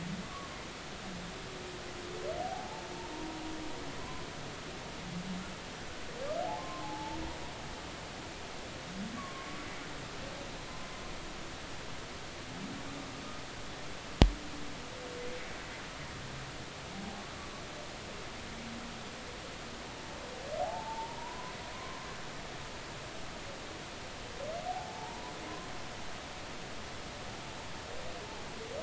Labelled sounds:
0.2	0.5	humpback whale, 1.0 to 1.2 kHz
2.4	4.3	humpback whale, 0.80 to 1.1 kHz
6.6	7.2	humpback whale, 0.80 to 1.1 kHz
9.2	9.6	humpback whale, 1.0 to 1.2 kHz
16.9	17.2	humpback whale, 0.80 to 0.86 kHz
20.6	22.0	humpback whale, 0.80 to 1.1 kHz
24.7	25.3	humpback whale, 0.80 to 1.0 kHz

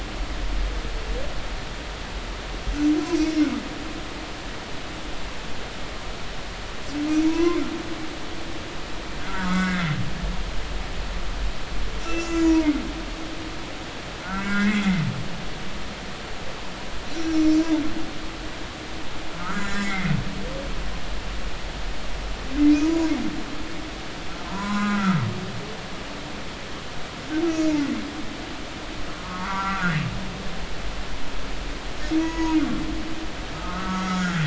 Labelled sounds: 3.1	3.4	humpback whale, 5.8 to 6.0 kHz
7.2	7.6	humpback whale, 0.90 to 1.1 kHz
9.2	10.0	humpback whale, 1.1 to 2.3 kHz
12.0	12.7	humpback whale, 0.86 to 7.4 kHz
13.0	15.0	humpback whale, 1.2 to 6.1 kHz
17.1	17.6	humpback whale, 5.2 to 7.3 kHz
19.4	20.1	humpback whale, 1.2 to 5.4 kHz
22.7	23.1	humpback whale, 0.93 to 6.1 kHz
24.5	25.2	humpback whale, 0.90 to 4.0 kHz
27.5	28.0	humpback whale, 1.9 to 6.1 kHz
29.2	30.0	humpback whale, 0.86 to 1.7 kHz
32.2	32.6	humpback whale, 0.90 to 6.6 kHz
33.5	34.4	humpback whale, 1.0 to 1.7 kHz

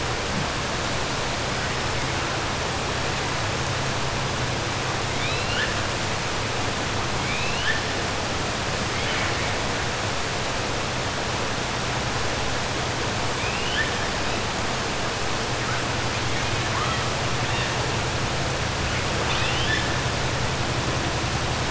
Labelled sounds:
5.1	5.7	killer whale, 1.4 to 4.3 kHz
7.2	7.8	killer whale, 1.6 to 4.3 kHz
8.9	9.5	killer whale, 1.1 to 3.4 kHz
13.3	13.9	killer whale, 1.5 to 3.6 kHz
16.6	17.0	killer whale, 1.0 to 4.1 kHz
19.2	19.9	killer whale, 1.7 to 4.5 kHz

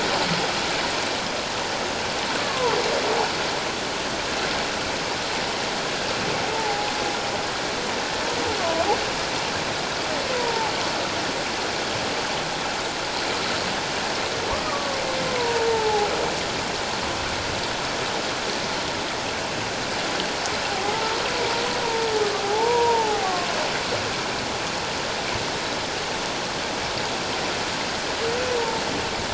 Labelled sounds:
2.4	2.8	humpback whale, 0.84 to 1.2 kHz
6.5	6.9	humpback whale, 0.78 to 0.94 kHz
8.6	8.9	humpback whale, 0.94 to 1.2 kHz
10.4	10.7	humpback whale, 0.78 to 1.0 kHz
14.5	16.1	humpback whale, 0.78 to 1.3 kHz
20.7	20.9	humpback whale, 0.78 to 0.88 kHz
22.4	23.5	humpback whale, 0.78 to 1.2 kHz
28.6	28.8	humpback whale, 0.84 to 0.97 kHz

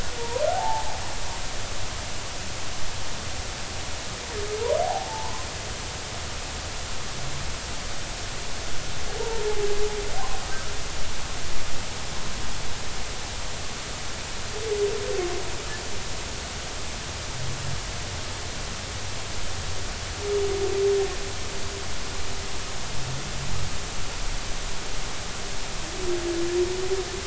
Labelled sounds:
0.2	1.0	humpback whale, 0.80 to 1.1 kHz
4.8	5.5	humpback whale, 0.80 to 1.1 kHz
9.2	9.4	humpback whale, 0.86 to 0.99 kHz

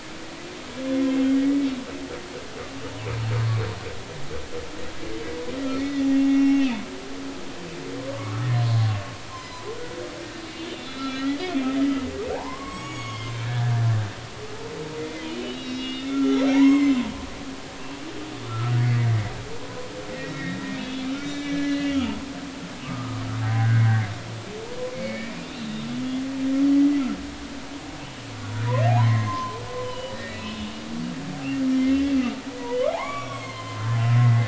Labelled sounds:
1.1	1.4	humpback whale, 3.0 to 3.2 kHz
5.8	6.8	humpback whale, 1.9 to 3.7 kHz
8.2	8.5	humpback whale, 1.1 to 1.4 kHz
10.5	11.4	humpback whale, 1.2 to 4.1 kHz
12.3	13.7	humpback whale, 0.80 to 7.9 kHz
15.0	17.1	humpback whale, 0.80 to 7.6 kHz
18.5	18.7	humpback whale, 1.2 to 1.4 kHz
20.1	22.2	humpback whale, 1.6 to 3.9 kHz
22.8	24.1	humpback whale, 0.80 to 2.0 kHz
24.9	25.5	humpback whale, 2.1 to 2.5 kHz
26.7	27.0	humpback whale, 1.9 to 2.0 kHz
28.9	30.6	humpback whale, 0.80 to 3.1 kHz
31.9	32.1	humpback whale, 1.8 to 2.0 kHz
32.7	34.4	humpback whale, 0.80 to 4.4 kHz

